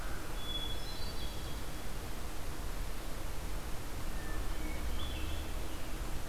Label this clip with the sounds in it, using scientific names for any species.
Catharus guttatus